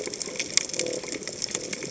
{"label": "biophony", "recorder": "HydroMoth"}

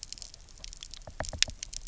{"label": "biophony, knock", "recorder": "SoundTrap 300"}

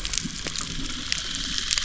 {"label": "anthrophony, boat engine", "recorder": "SoundTrap 300"}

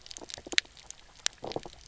{"label": "biophony", "recorder": "SoundTrap 300"}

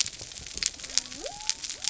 {"label": "biophony", "recorder": "SoundTrap 300"}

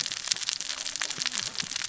{"label": "biophony, cascading saw", "recorder": "SoundTrap 600 or HydroMoth"}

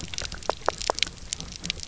{"label": "biophony, knock", "recorder": "SoundTrap 300"}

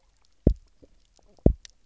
{"label": "biophony, double pulse", "recorder": "SoundTrap 300"}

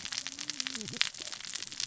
{"label": "biophony, cascading saw", "recorder": "SoundTrap 600 or HydroMoth"}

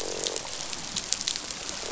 {"label": "biophony, croak", "recorder": "SoundTrap 500"}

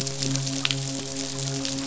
{"label": "biophony, midshipman", "recorder": "SoundTrap 500"}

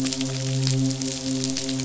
{"label": "biophony, midshipman", "recorder": "SoundTrap 500"}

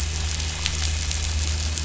{"label": "anthrophony, boat engine", "recorder": "SoundTrap 500"}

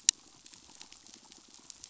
{"label": "biophony", "recorder": "SoundTrap 500"}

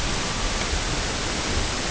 {"label": "ambient", "recorder": "HydroMoth"}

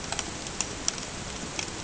{"label": "ambient", "recorder": "HydroMoth"}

